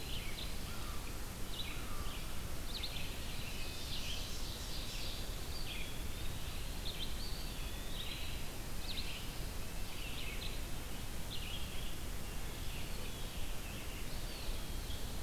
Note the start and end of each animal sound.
[0.00, 1.85] Red-eyed Vireo (Vireo olivaceus)
[0.54, 2.23] American Crow (Corvus brachyrhynchos)
[2.46, 15.22] Red-eyed Vireo (Vireo olivaceus)
[3.25, 5.13] Ovenbird (Seiurus aurocapilla)
[5.32, 8.31] Eastern Wood-Pewee (Contopus virens)
[7.67, 8.64] Wood Thrush (Hylocichla mustelina)
[13.88, 14.84] Eastern Wood-Pewee (Contopus virens)

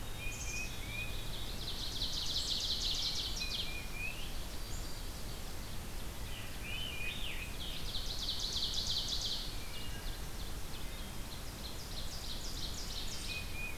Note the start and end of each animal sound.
[0.00, 1.26] Tufted Titmouse (Baeolophus bicolor)
[0.25, 1.25] Black-capped Chickadee (Poecile atricapillus)
[1.17, 6.04] Ovenbird (Seiurus aurocapilla)
[3.04, 4.30] Tufted Titmouse (Baeolophus bicolor)
[6.06, 7.57] Scarlet Tanager (Piranga olivacea)
[7.21, 13.50] Ovenbird (Seiurus aurocapilla)
[9.41, 10.16] Wood Thrush (Hylocichla mustelina)
[10.57, 11.29] Wood Thrush (Hylocichla mustelina)
[13.12, 13.77] Tufted Titmouse (Baeolophus bicolor)

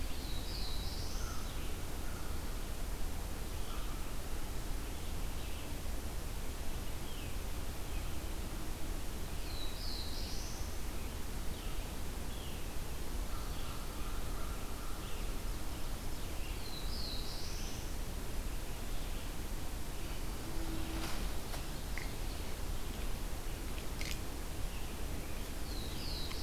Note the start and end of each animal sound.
[0.00, 1.54] Black-throated Blue Warbler (Setophaga caerulescens)
[0.00, 13.93] Red-eyed Vireo (Vireo olivaceus)
[9.26, 10.84] Black-throated Blue Warbler (Setophaga caerulescens)
[13.19, 15.43] American Crow (Corvus brachyrhynchos)
[14.63, 26.43] Red-eyed Vireo (Vireo olivaceus)
[16.41, 18.06] Black-throated Blue Warbler (Setophaga caerulescens)
[25.53, 26.43] Black-throated Blue Warbler (Setophaga caerulescens)

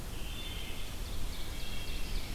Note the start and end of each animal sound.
[0.00, 0.93] Wood Thrush (Hylocichla mustelina)
[0.52, 2.35] Scarlet Tanager (Piranga olivacea)
[0.74, 2.35] Ovenbird (Seiurus aurocapilla)
[1.39, 2.28] Wood Thrush (Hylocichla mustelina)

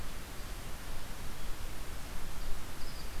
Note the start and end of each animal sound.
[0.00, 3.20] unknown mammal

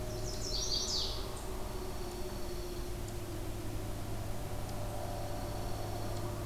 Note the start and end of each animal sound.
[0.00, 1.53] Chestnut-sided Warbler (Setophaga pensylvanica)
[1.50, 3.00] Dark-eyed Junco (Junco hyemalis)
[4.75, 6.45] Dark-eyed Junco (Junco hyemalis)

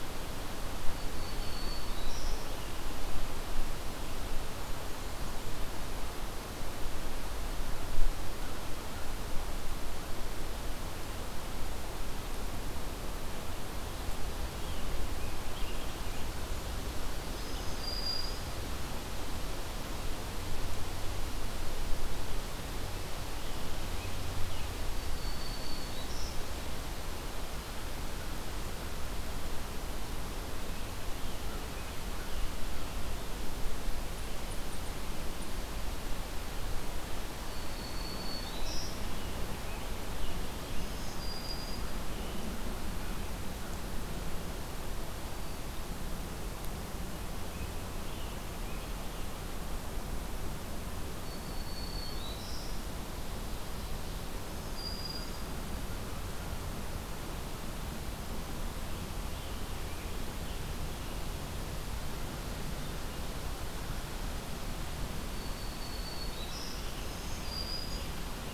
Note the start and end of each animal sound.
[0.69, 2.96] Black-throated Green Warbler (Setophaga virens)
[14.39, 16.48] Scarlet Tanager (Piranga olivacea)
[17.11, 18.88] Black-throated Green Warbler (Setophaga virens)
[24.81, 26.76] Black-throated Green Warbler (Setophaga virens)
[37.45, 39.14] Black-throated Green Warbler (Setophaga virens)
[38.64, 42.69] Scarlet Tanager (Piranga olivacea)
[40.58, 42.13] Black-throated Green Warbler (Setophaga virens)
[47.44, 49.29] Scarlet Tanager (Piranga olivacea)
[51.07, 52.86] Black-throated Green Warbler (Setophaga virens)
[54.14, 55.84] Black-throated Green Warbler (Setophaga virens)
[65.07, 68.53] Black-throated Green Warbler (Setophaga virens)

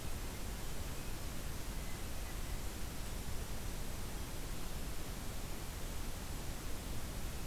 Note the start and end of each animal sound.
[1.52, 2.78] Blue Jay (Cyanocitta cristata)

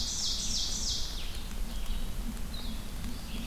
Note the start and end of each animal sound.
[0.00, 1.24] Ovenbird (Seiurus aurocapilla)
[0.00, 3.47] Red-eyed Vireo (Vireo olivaceus)
[2.82, 3.47] Ovenbird (Seiurus aurocapilla)

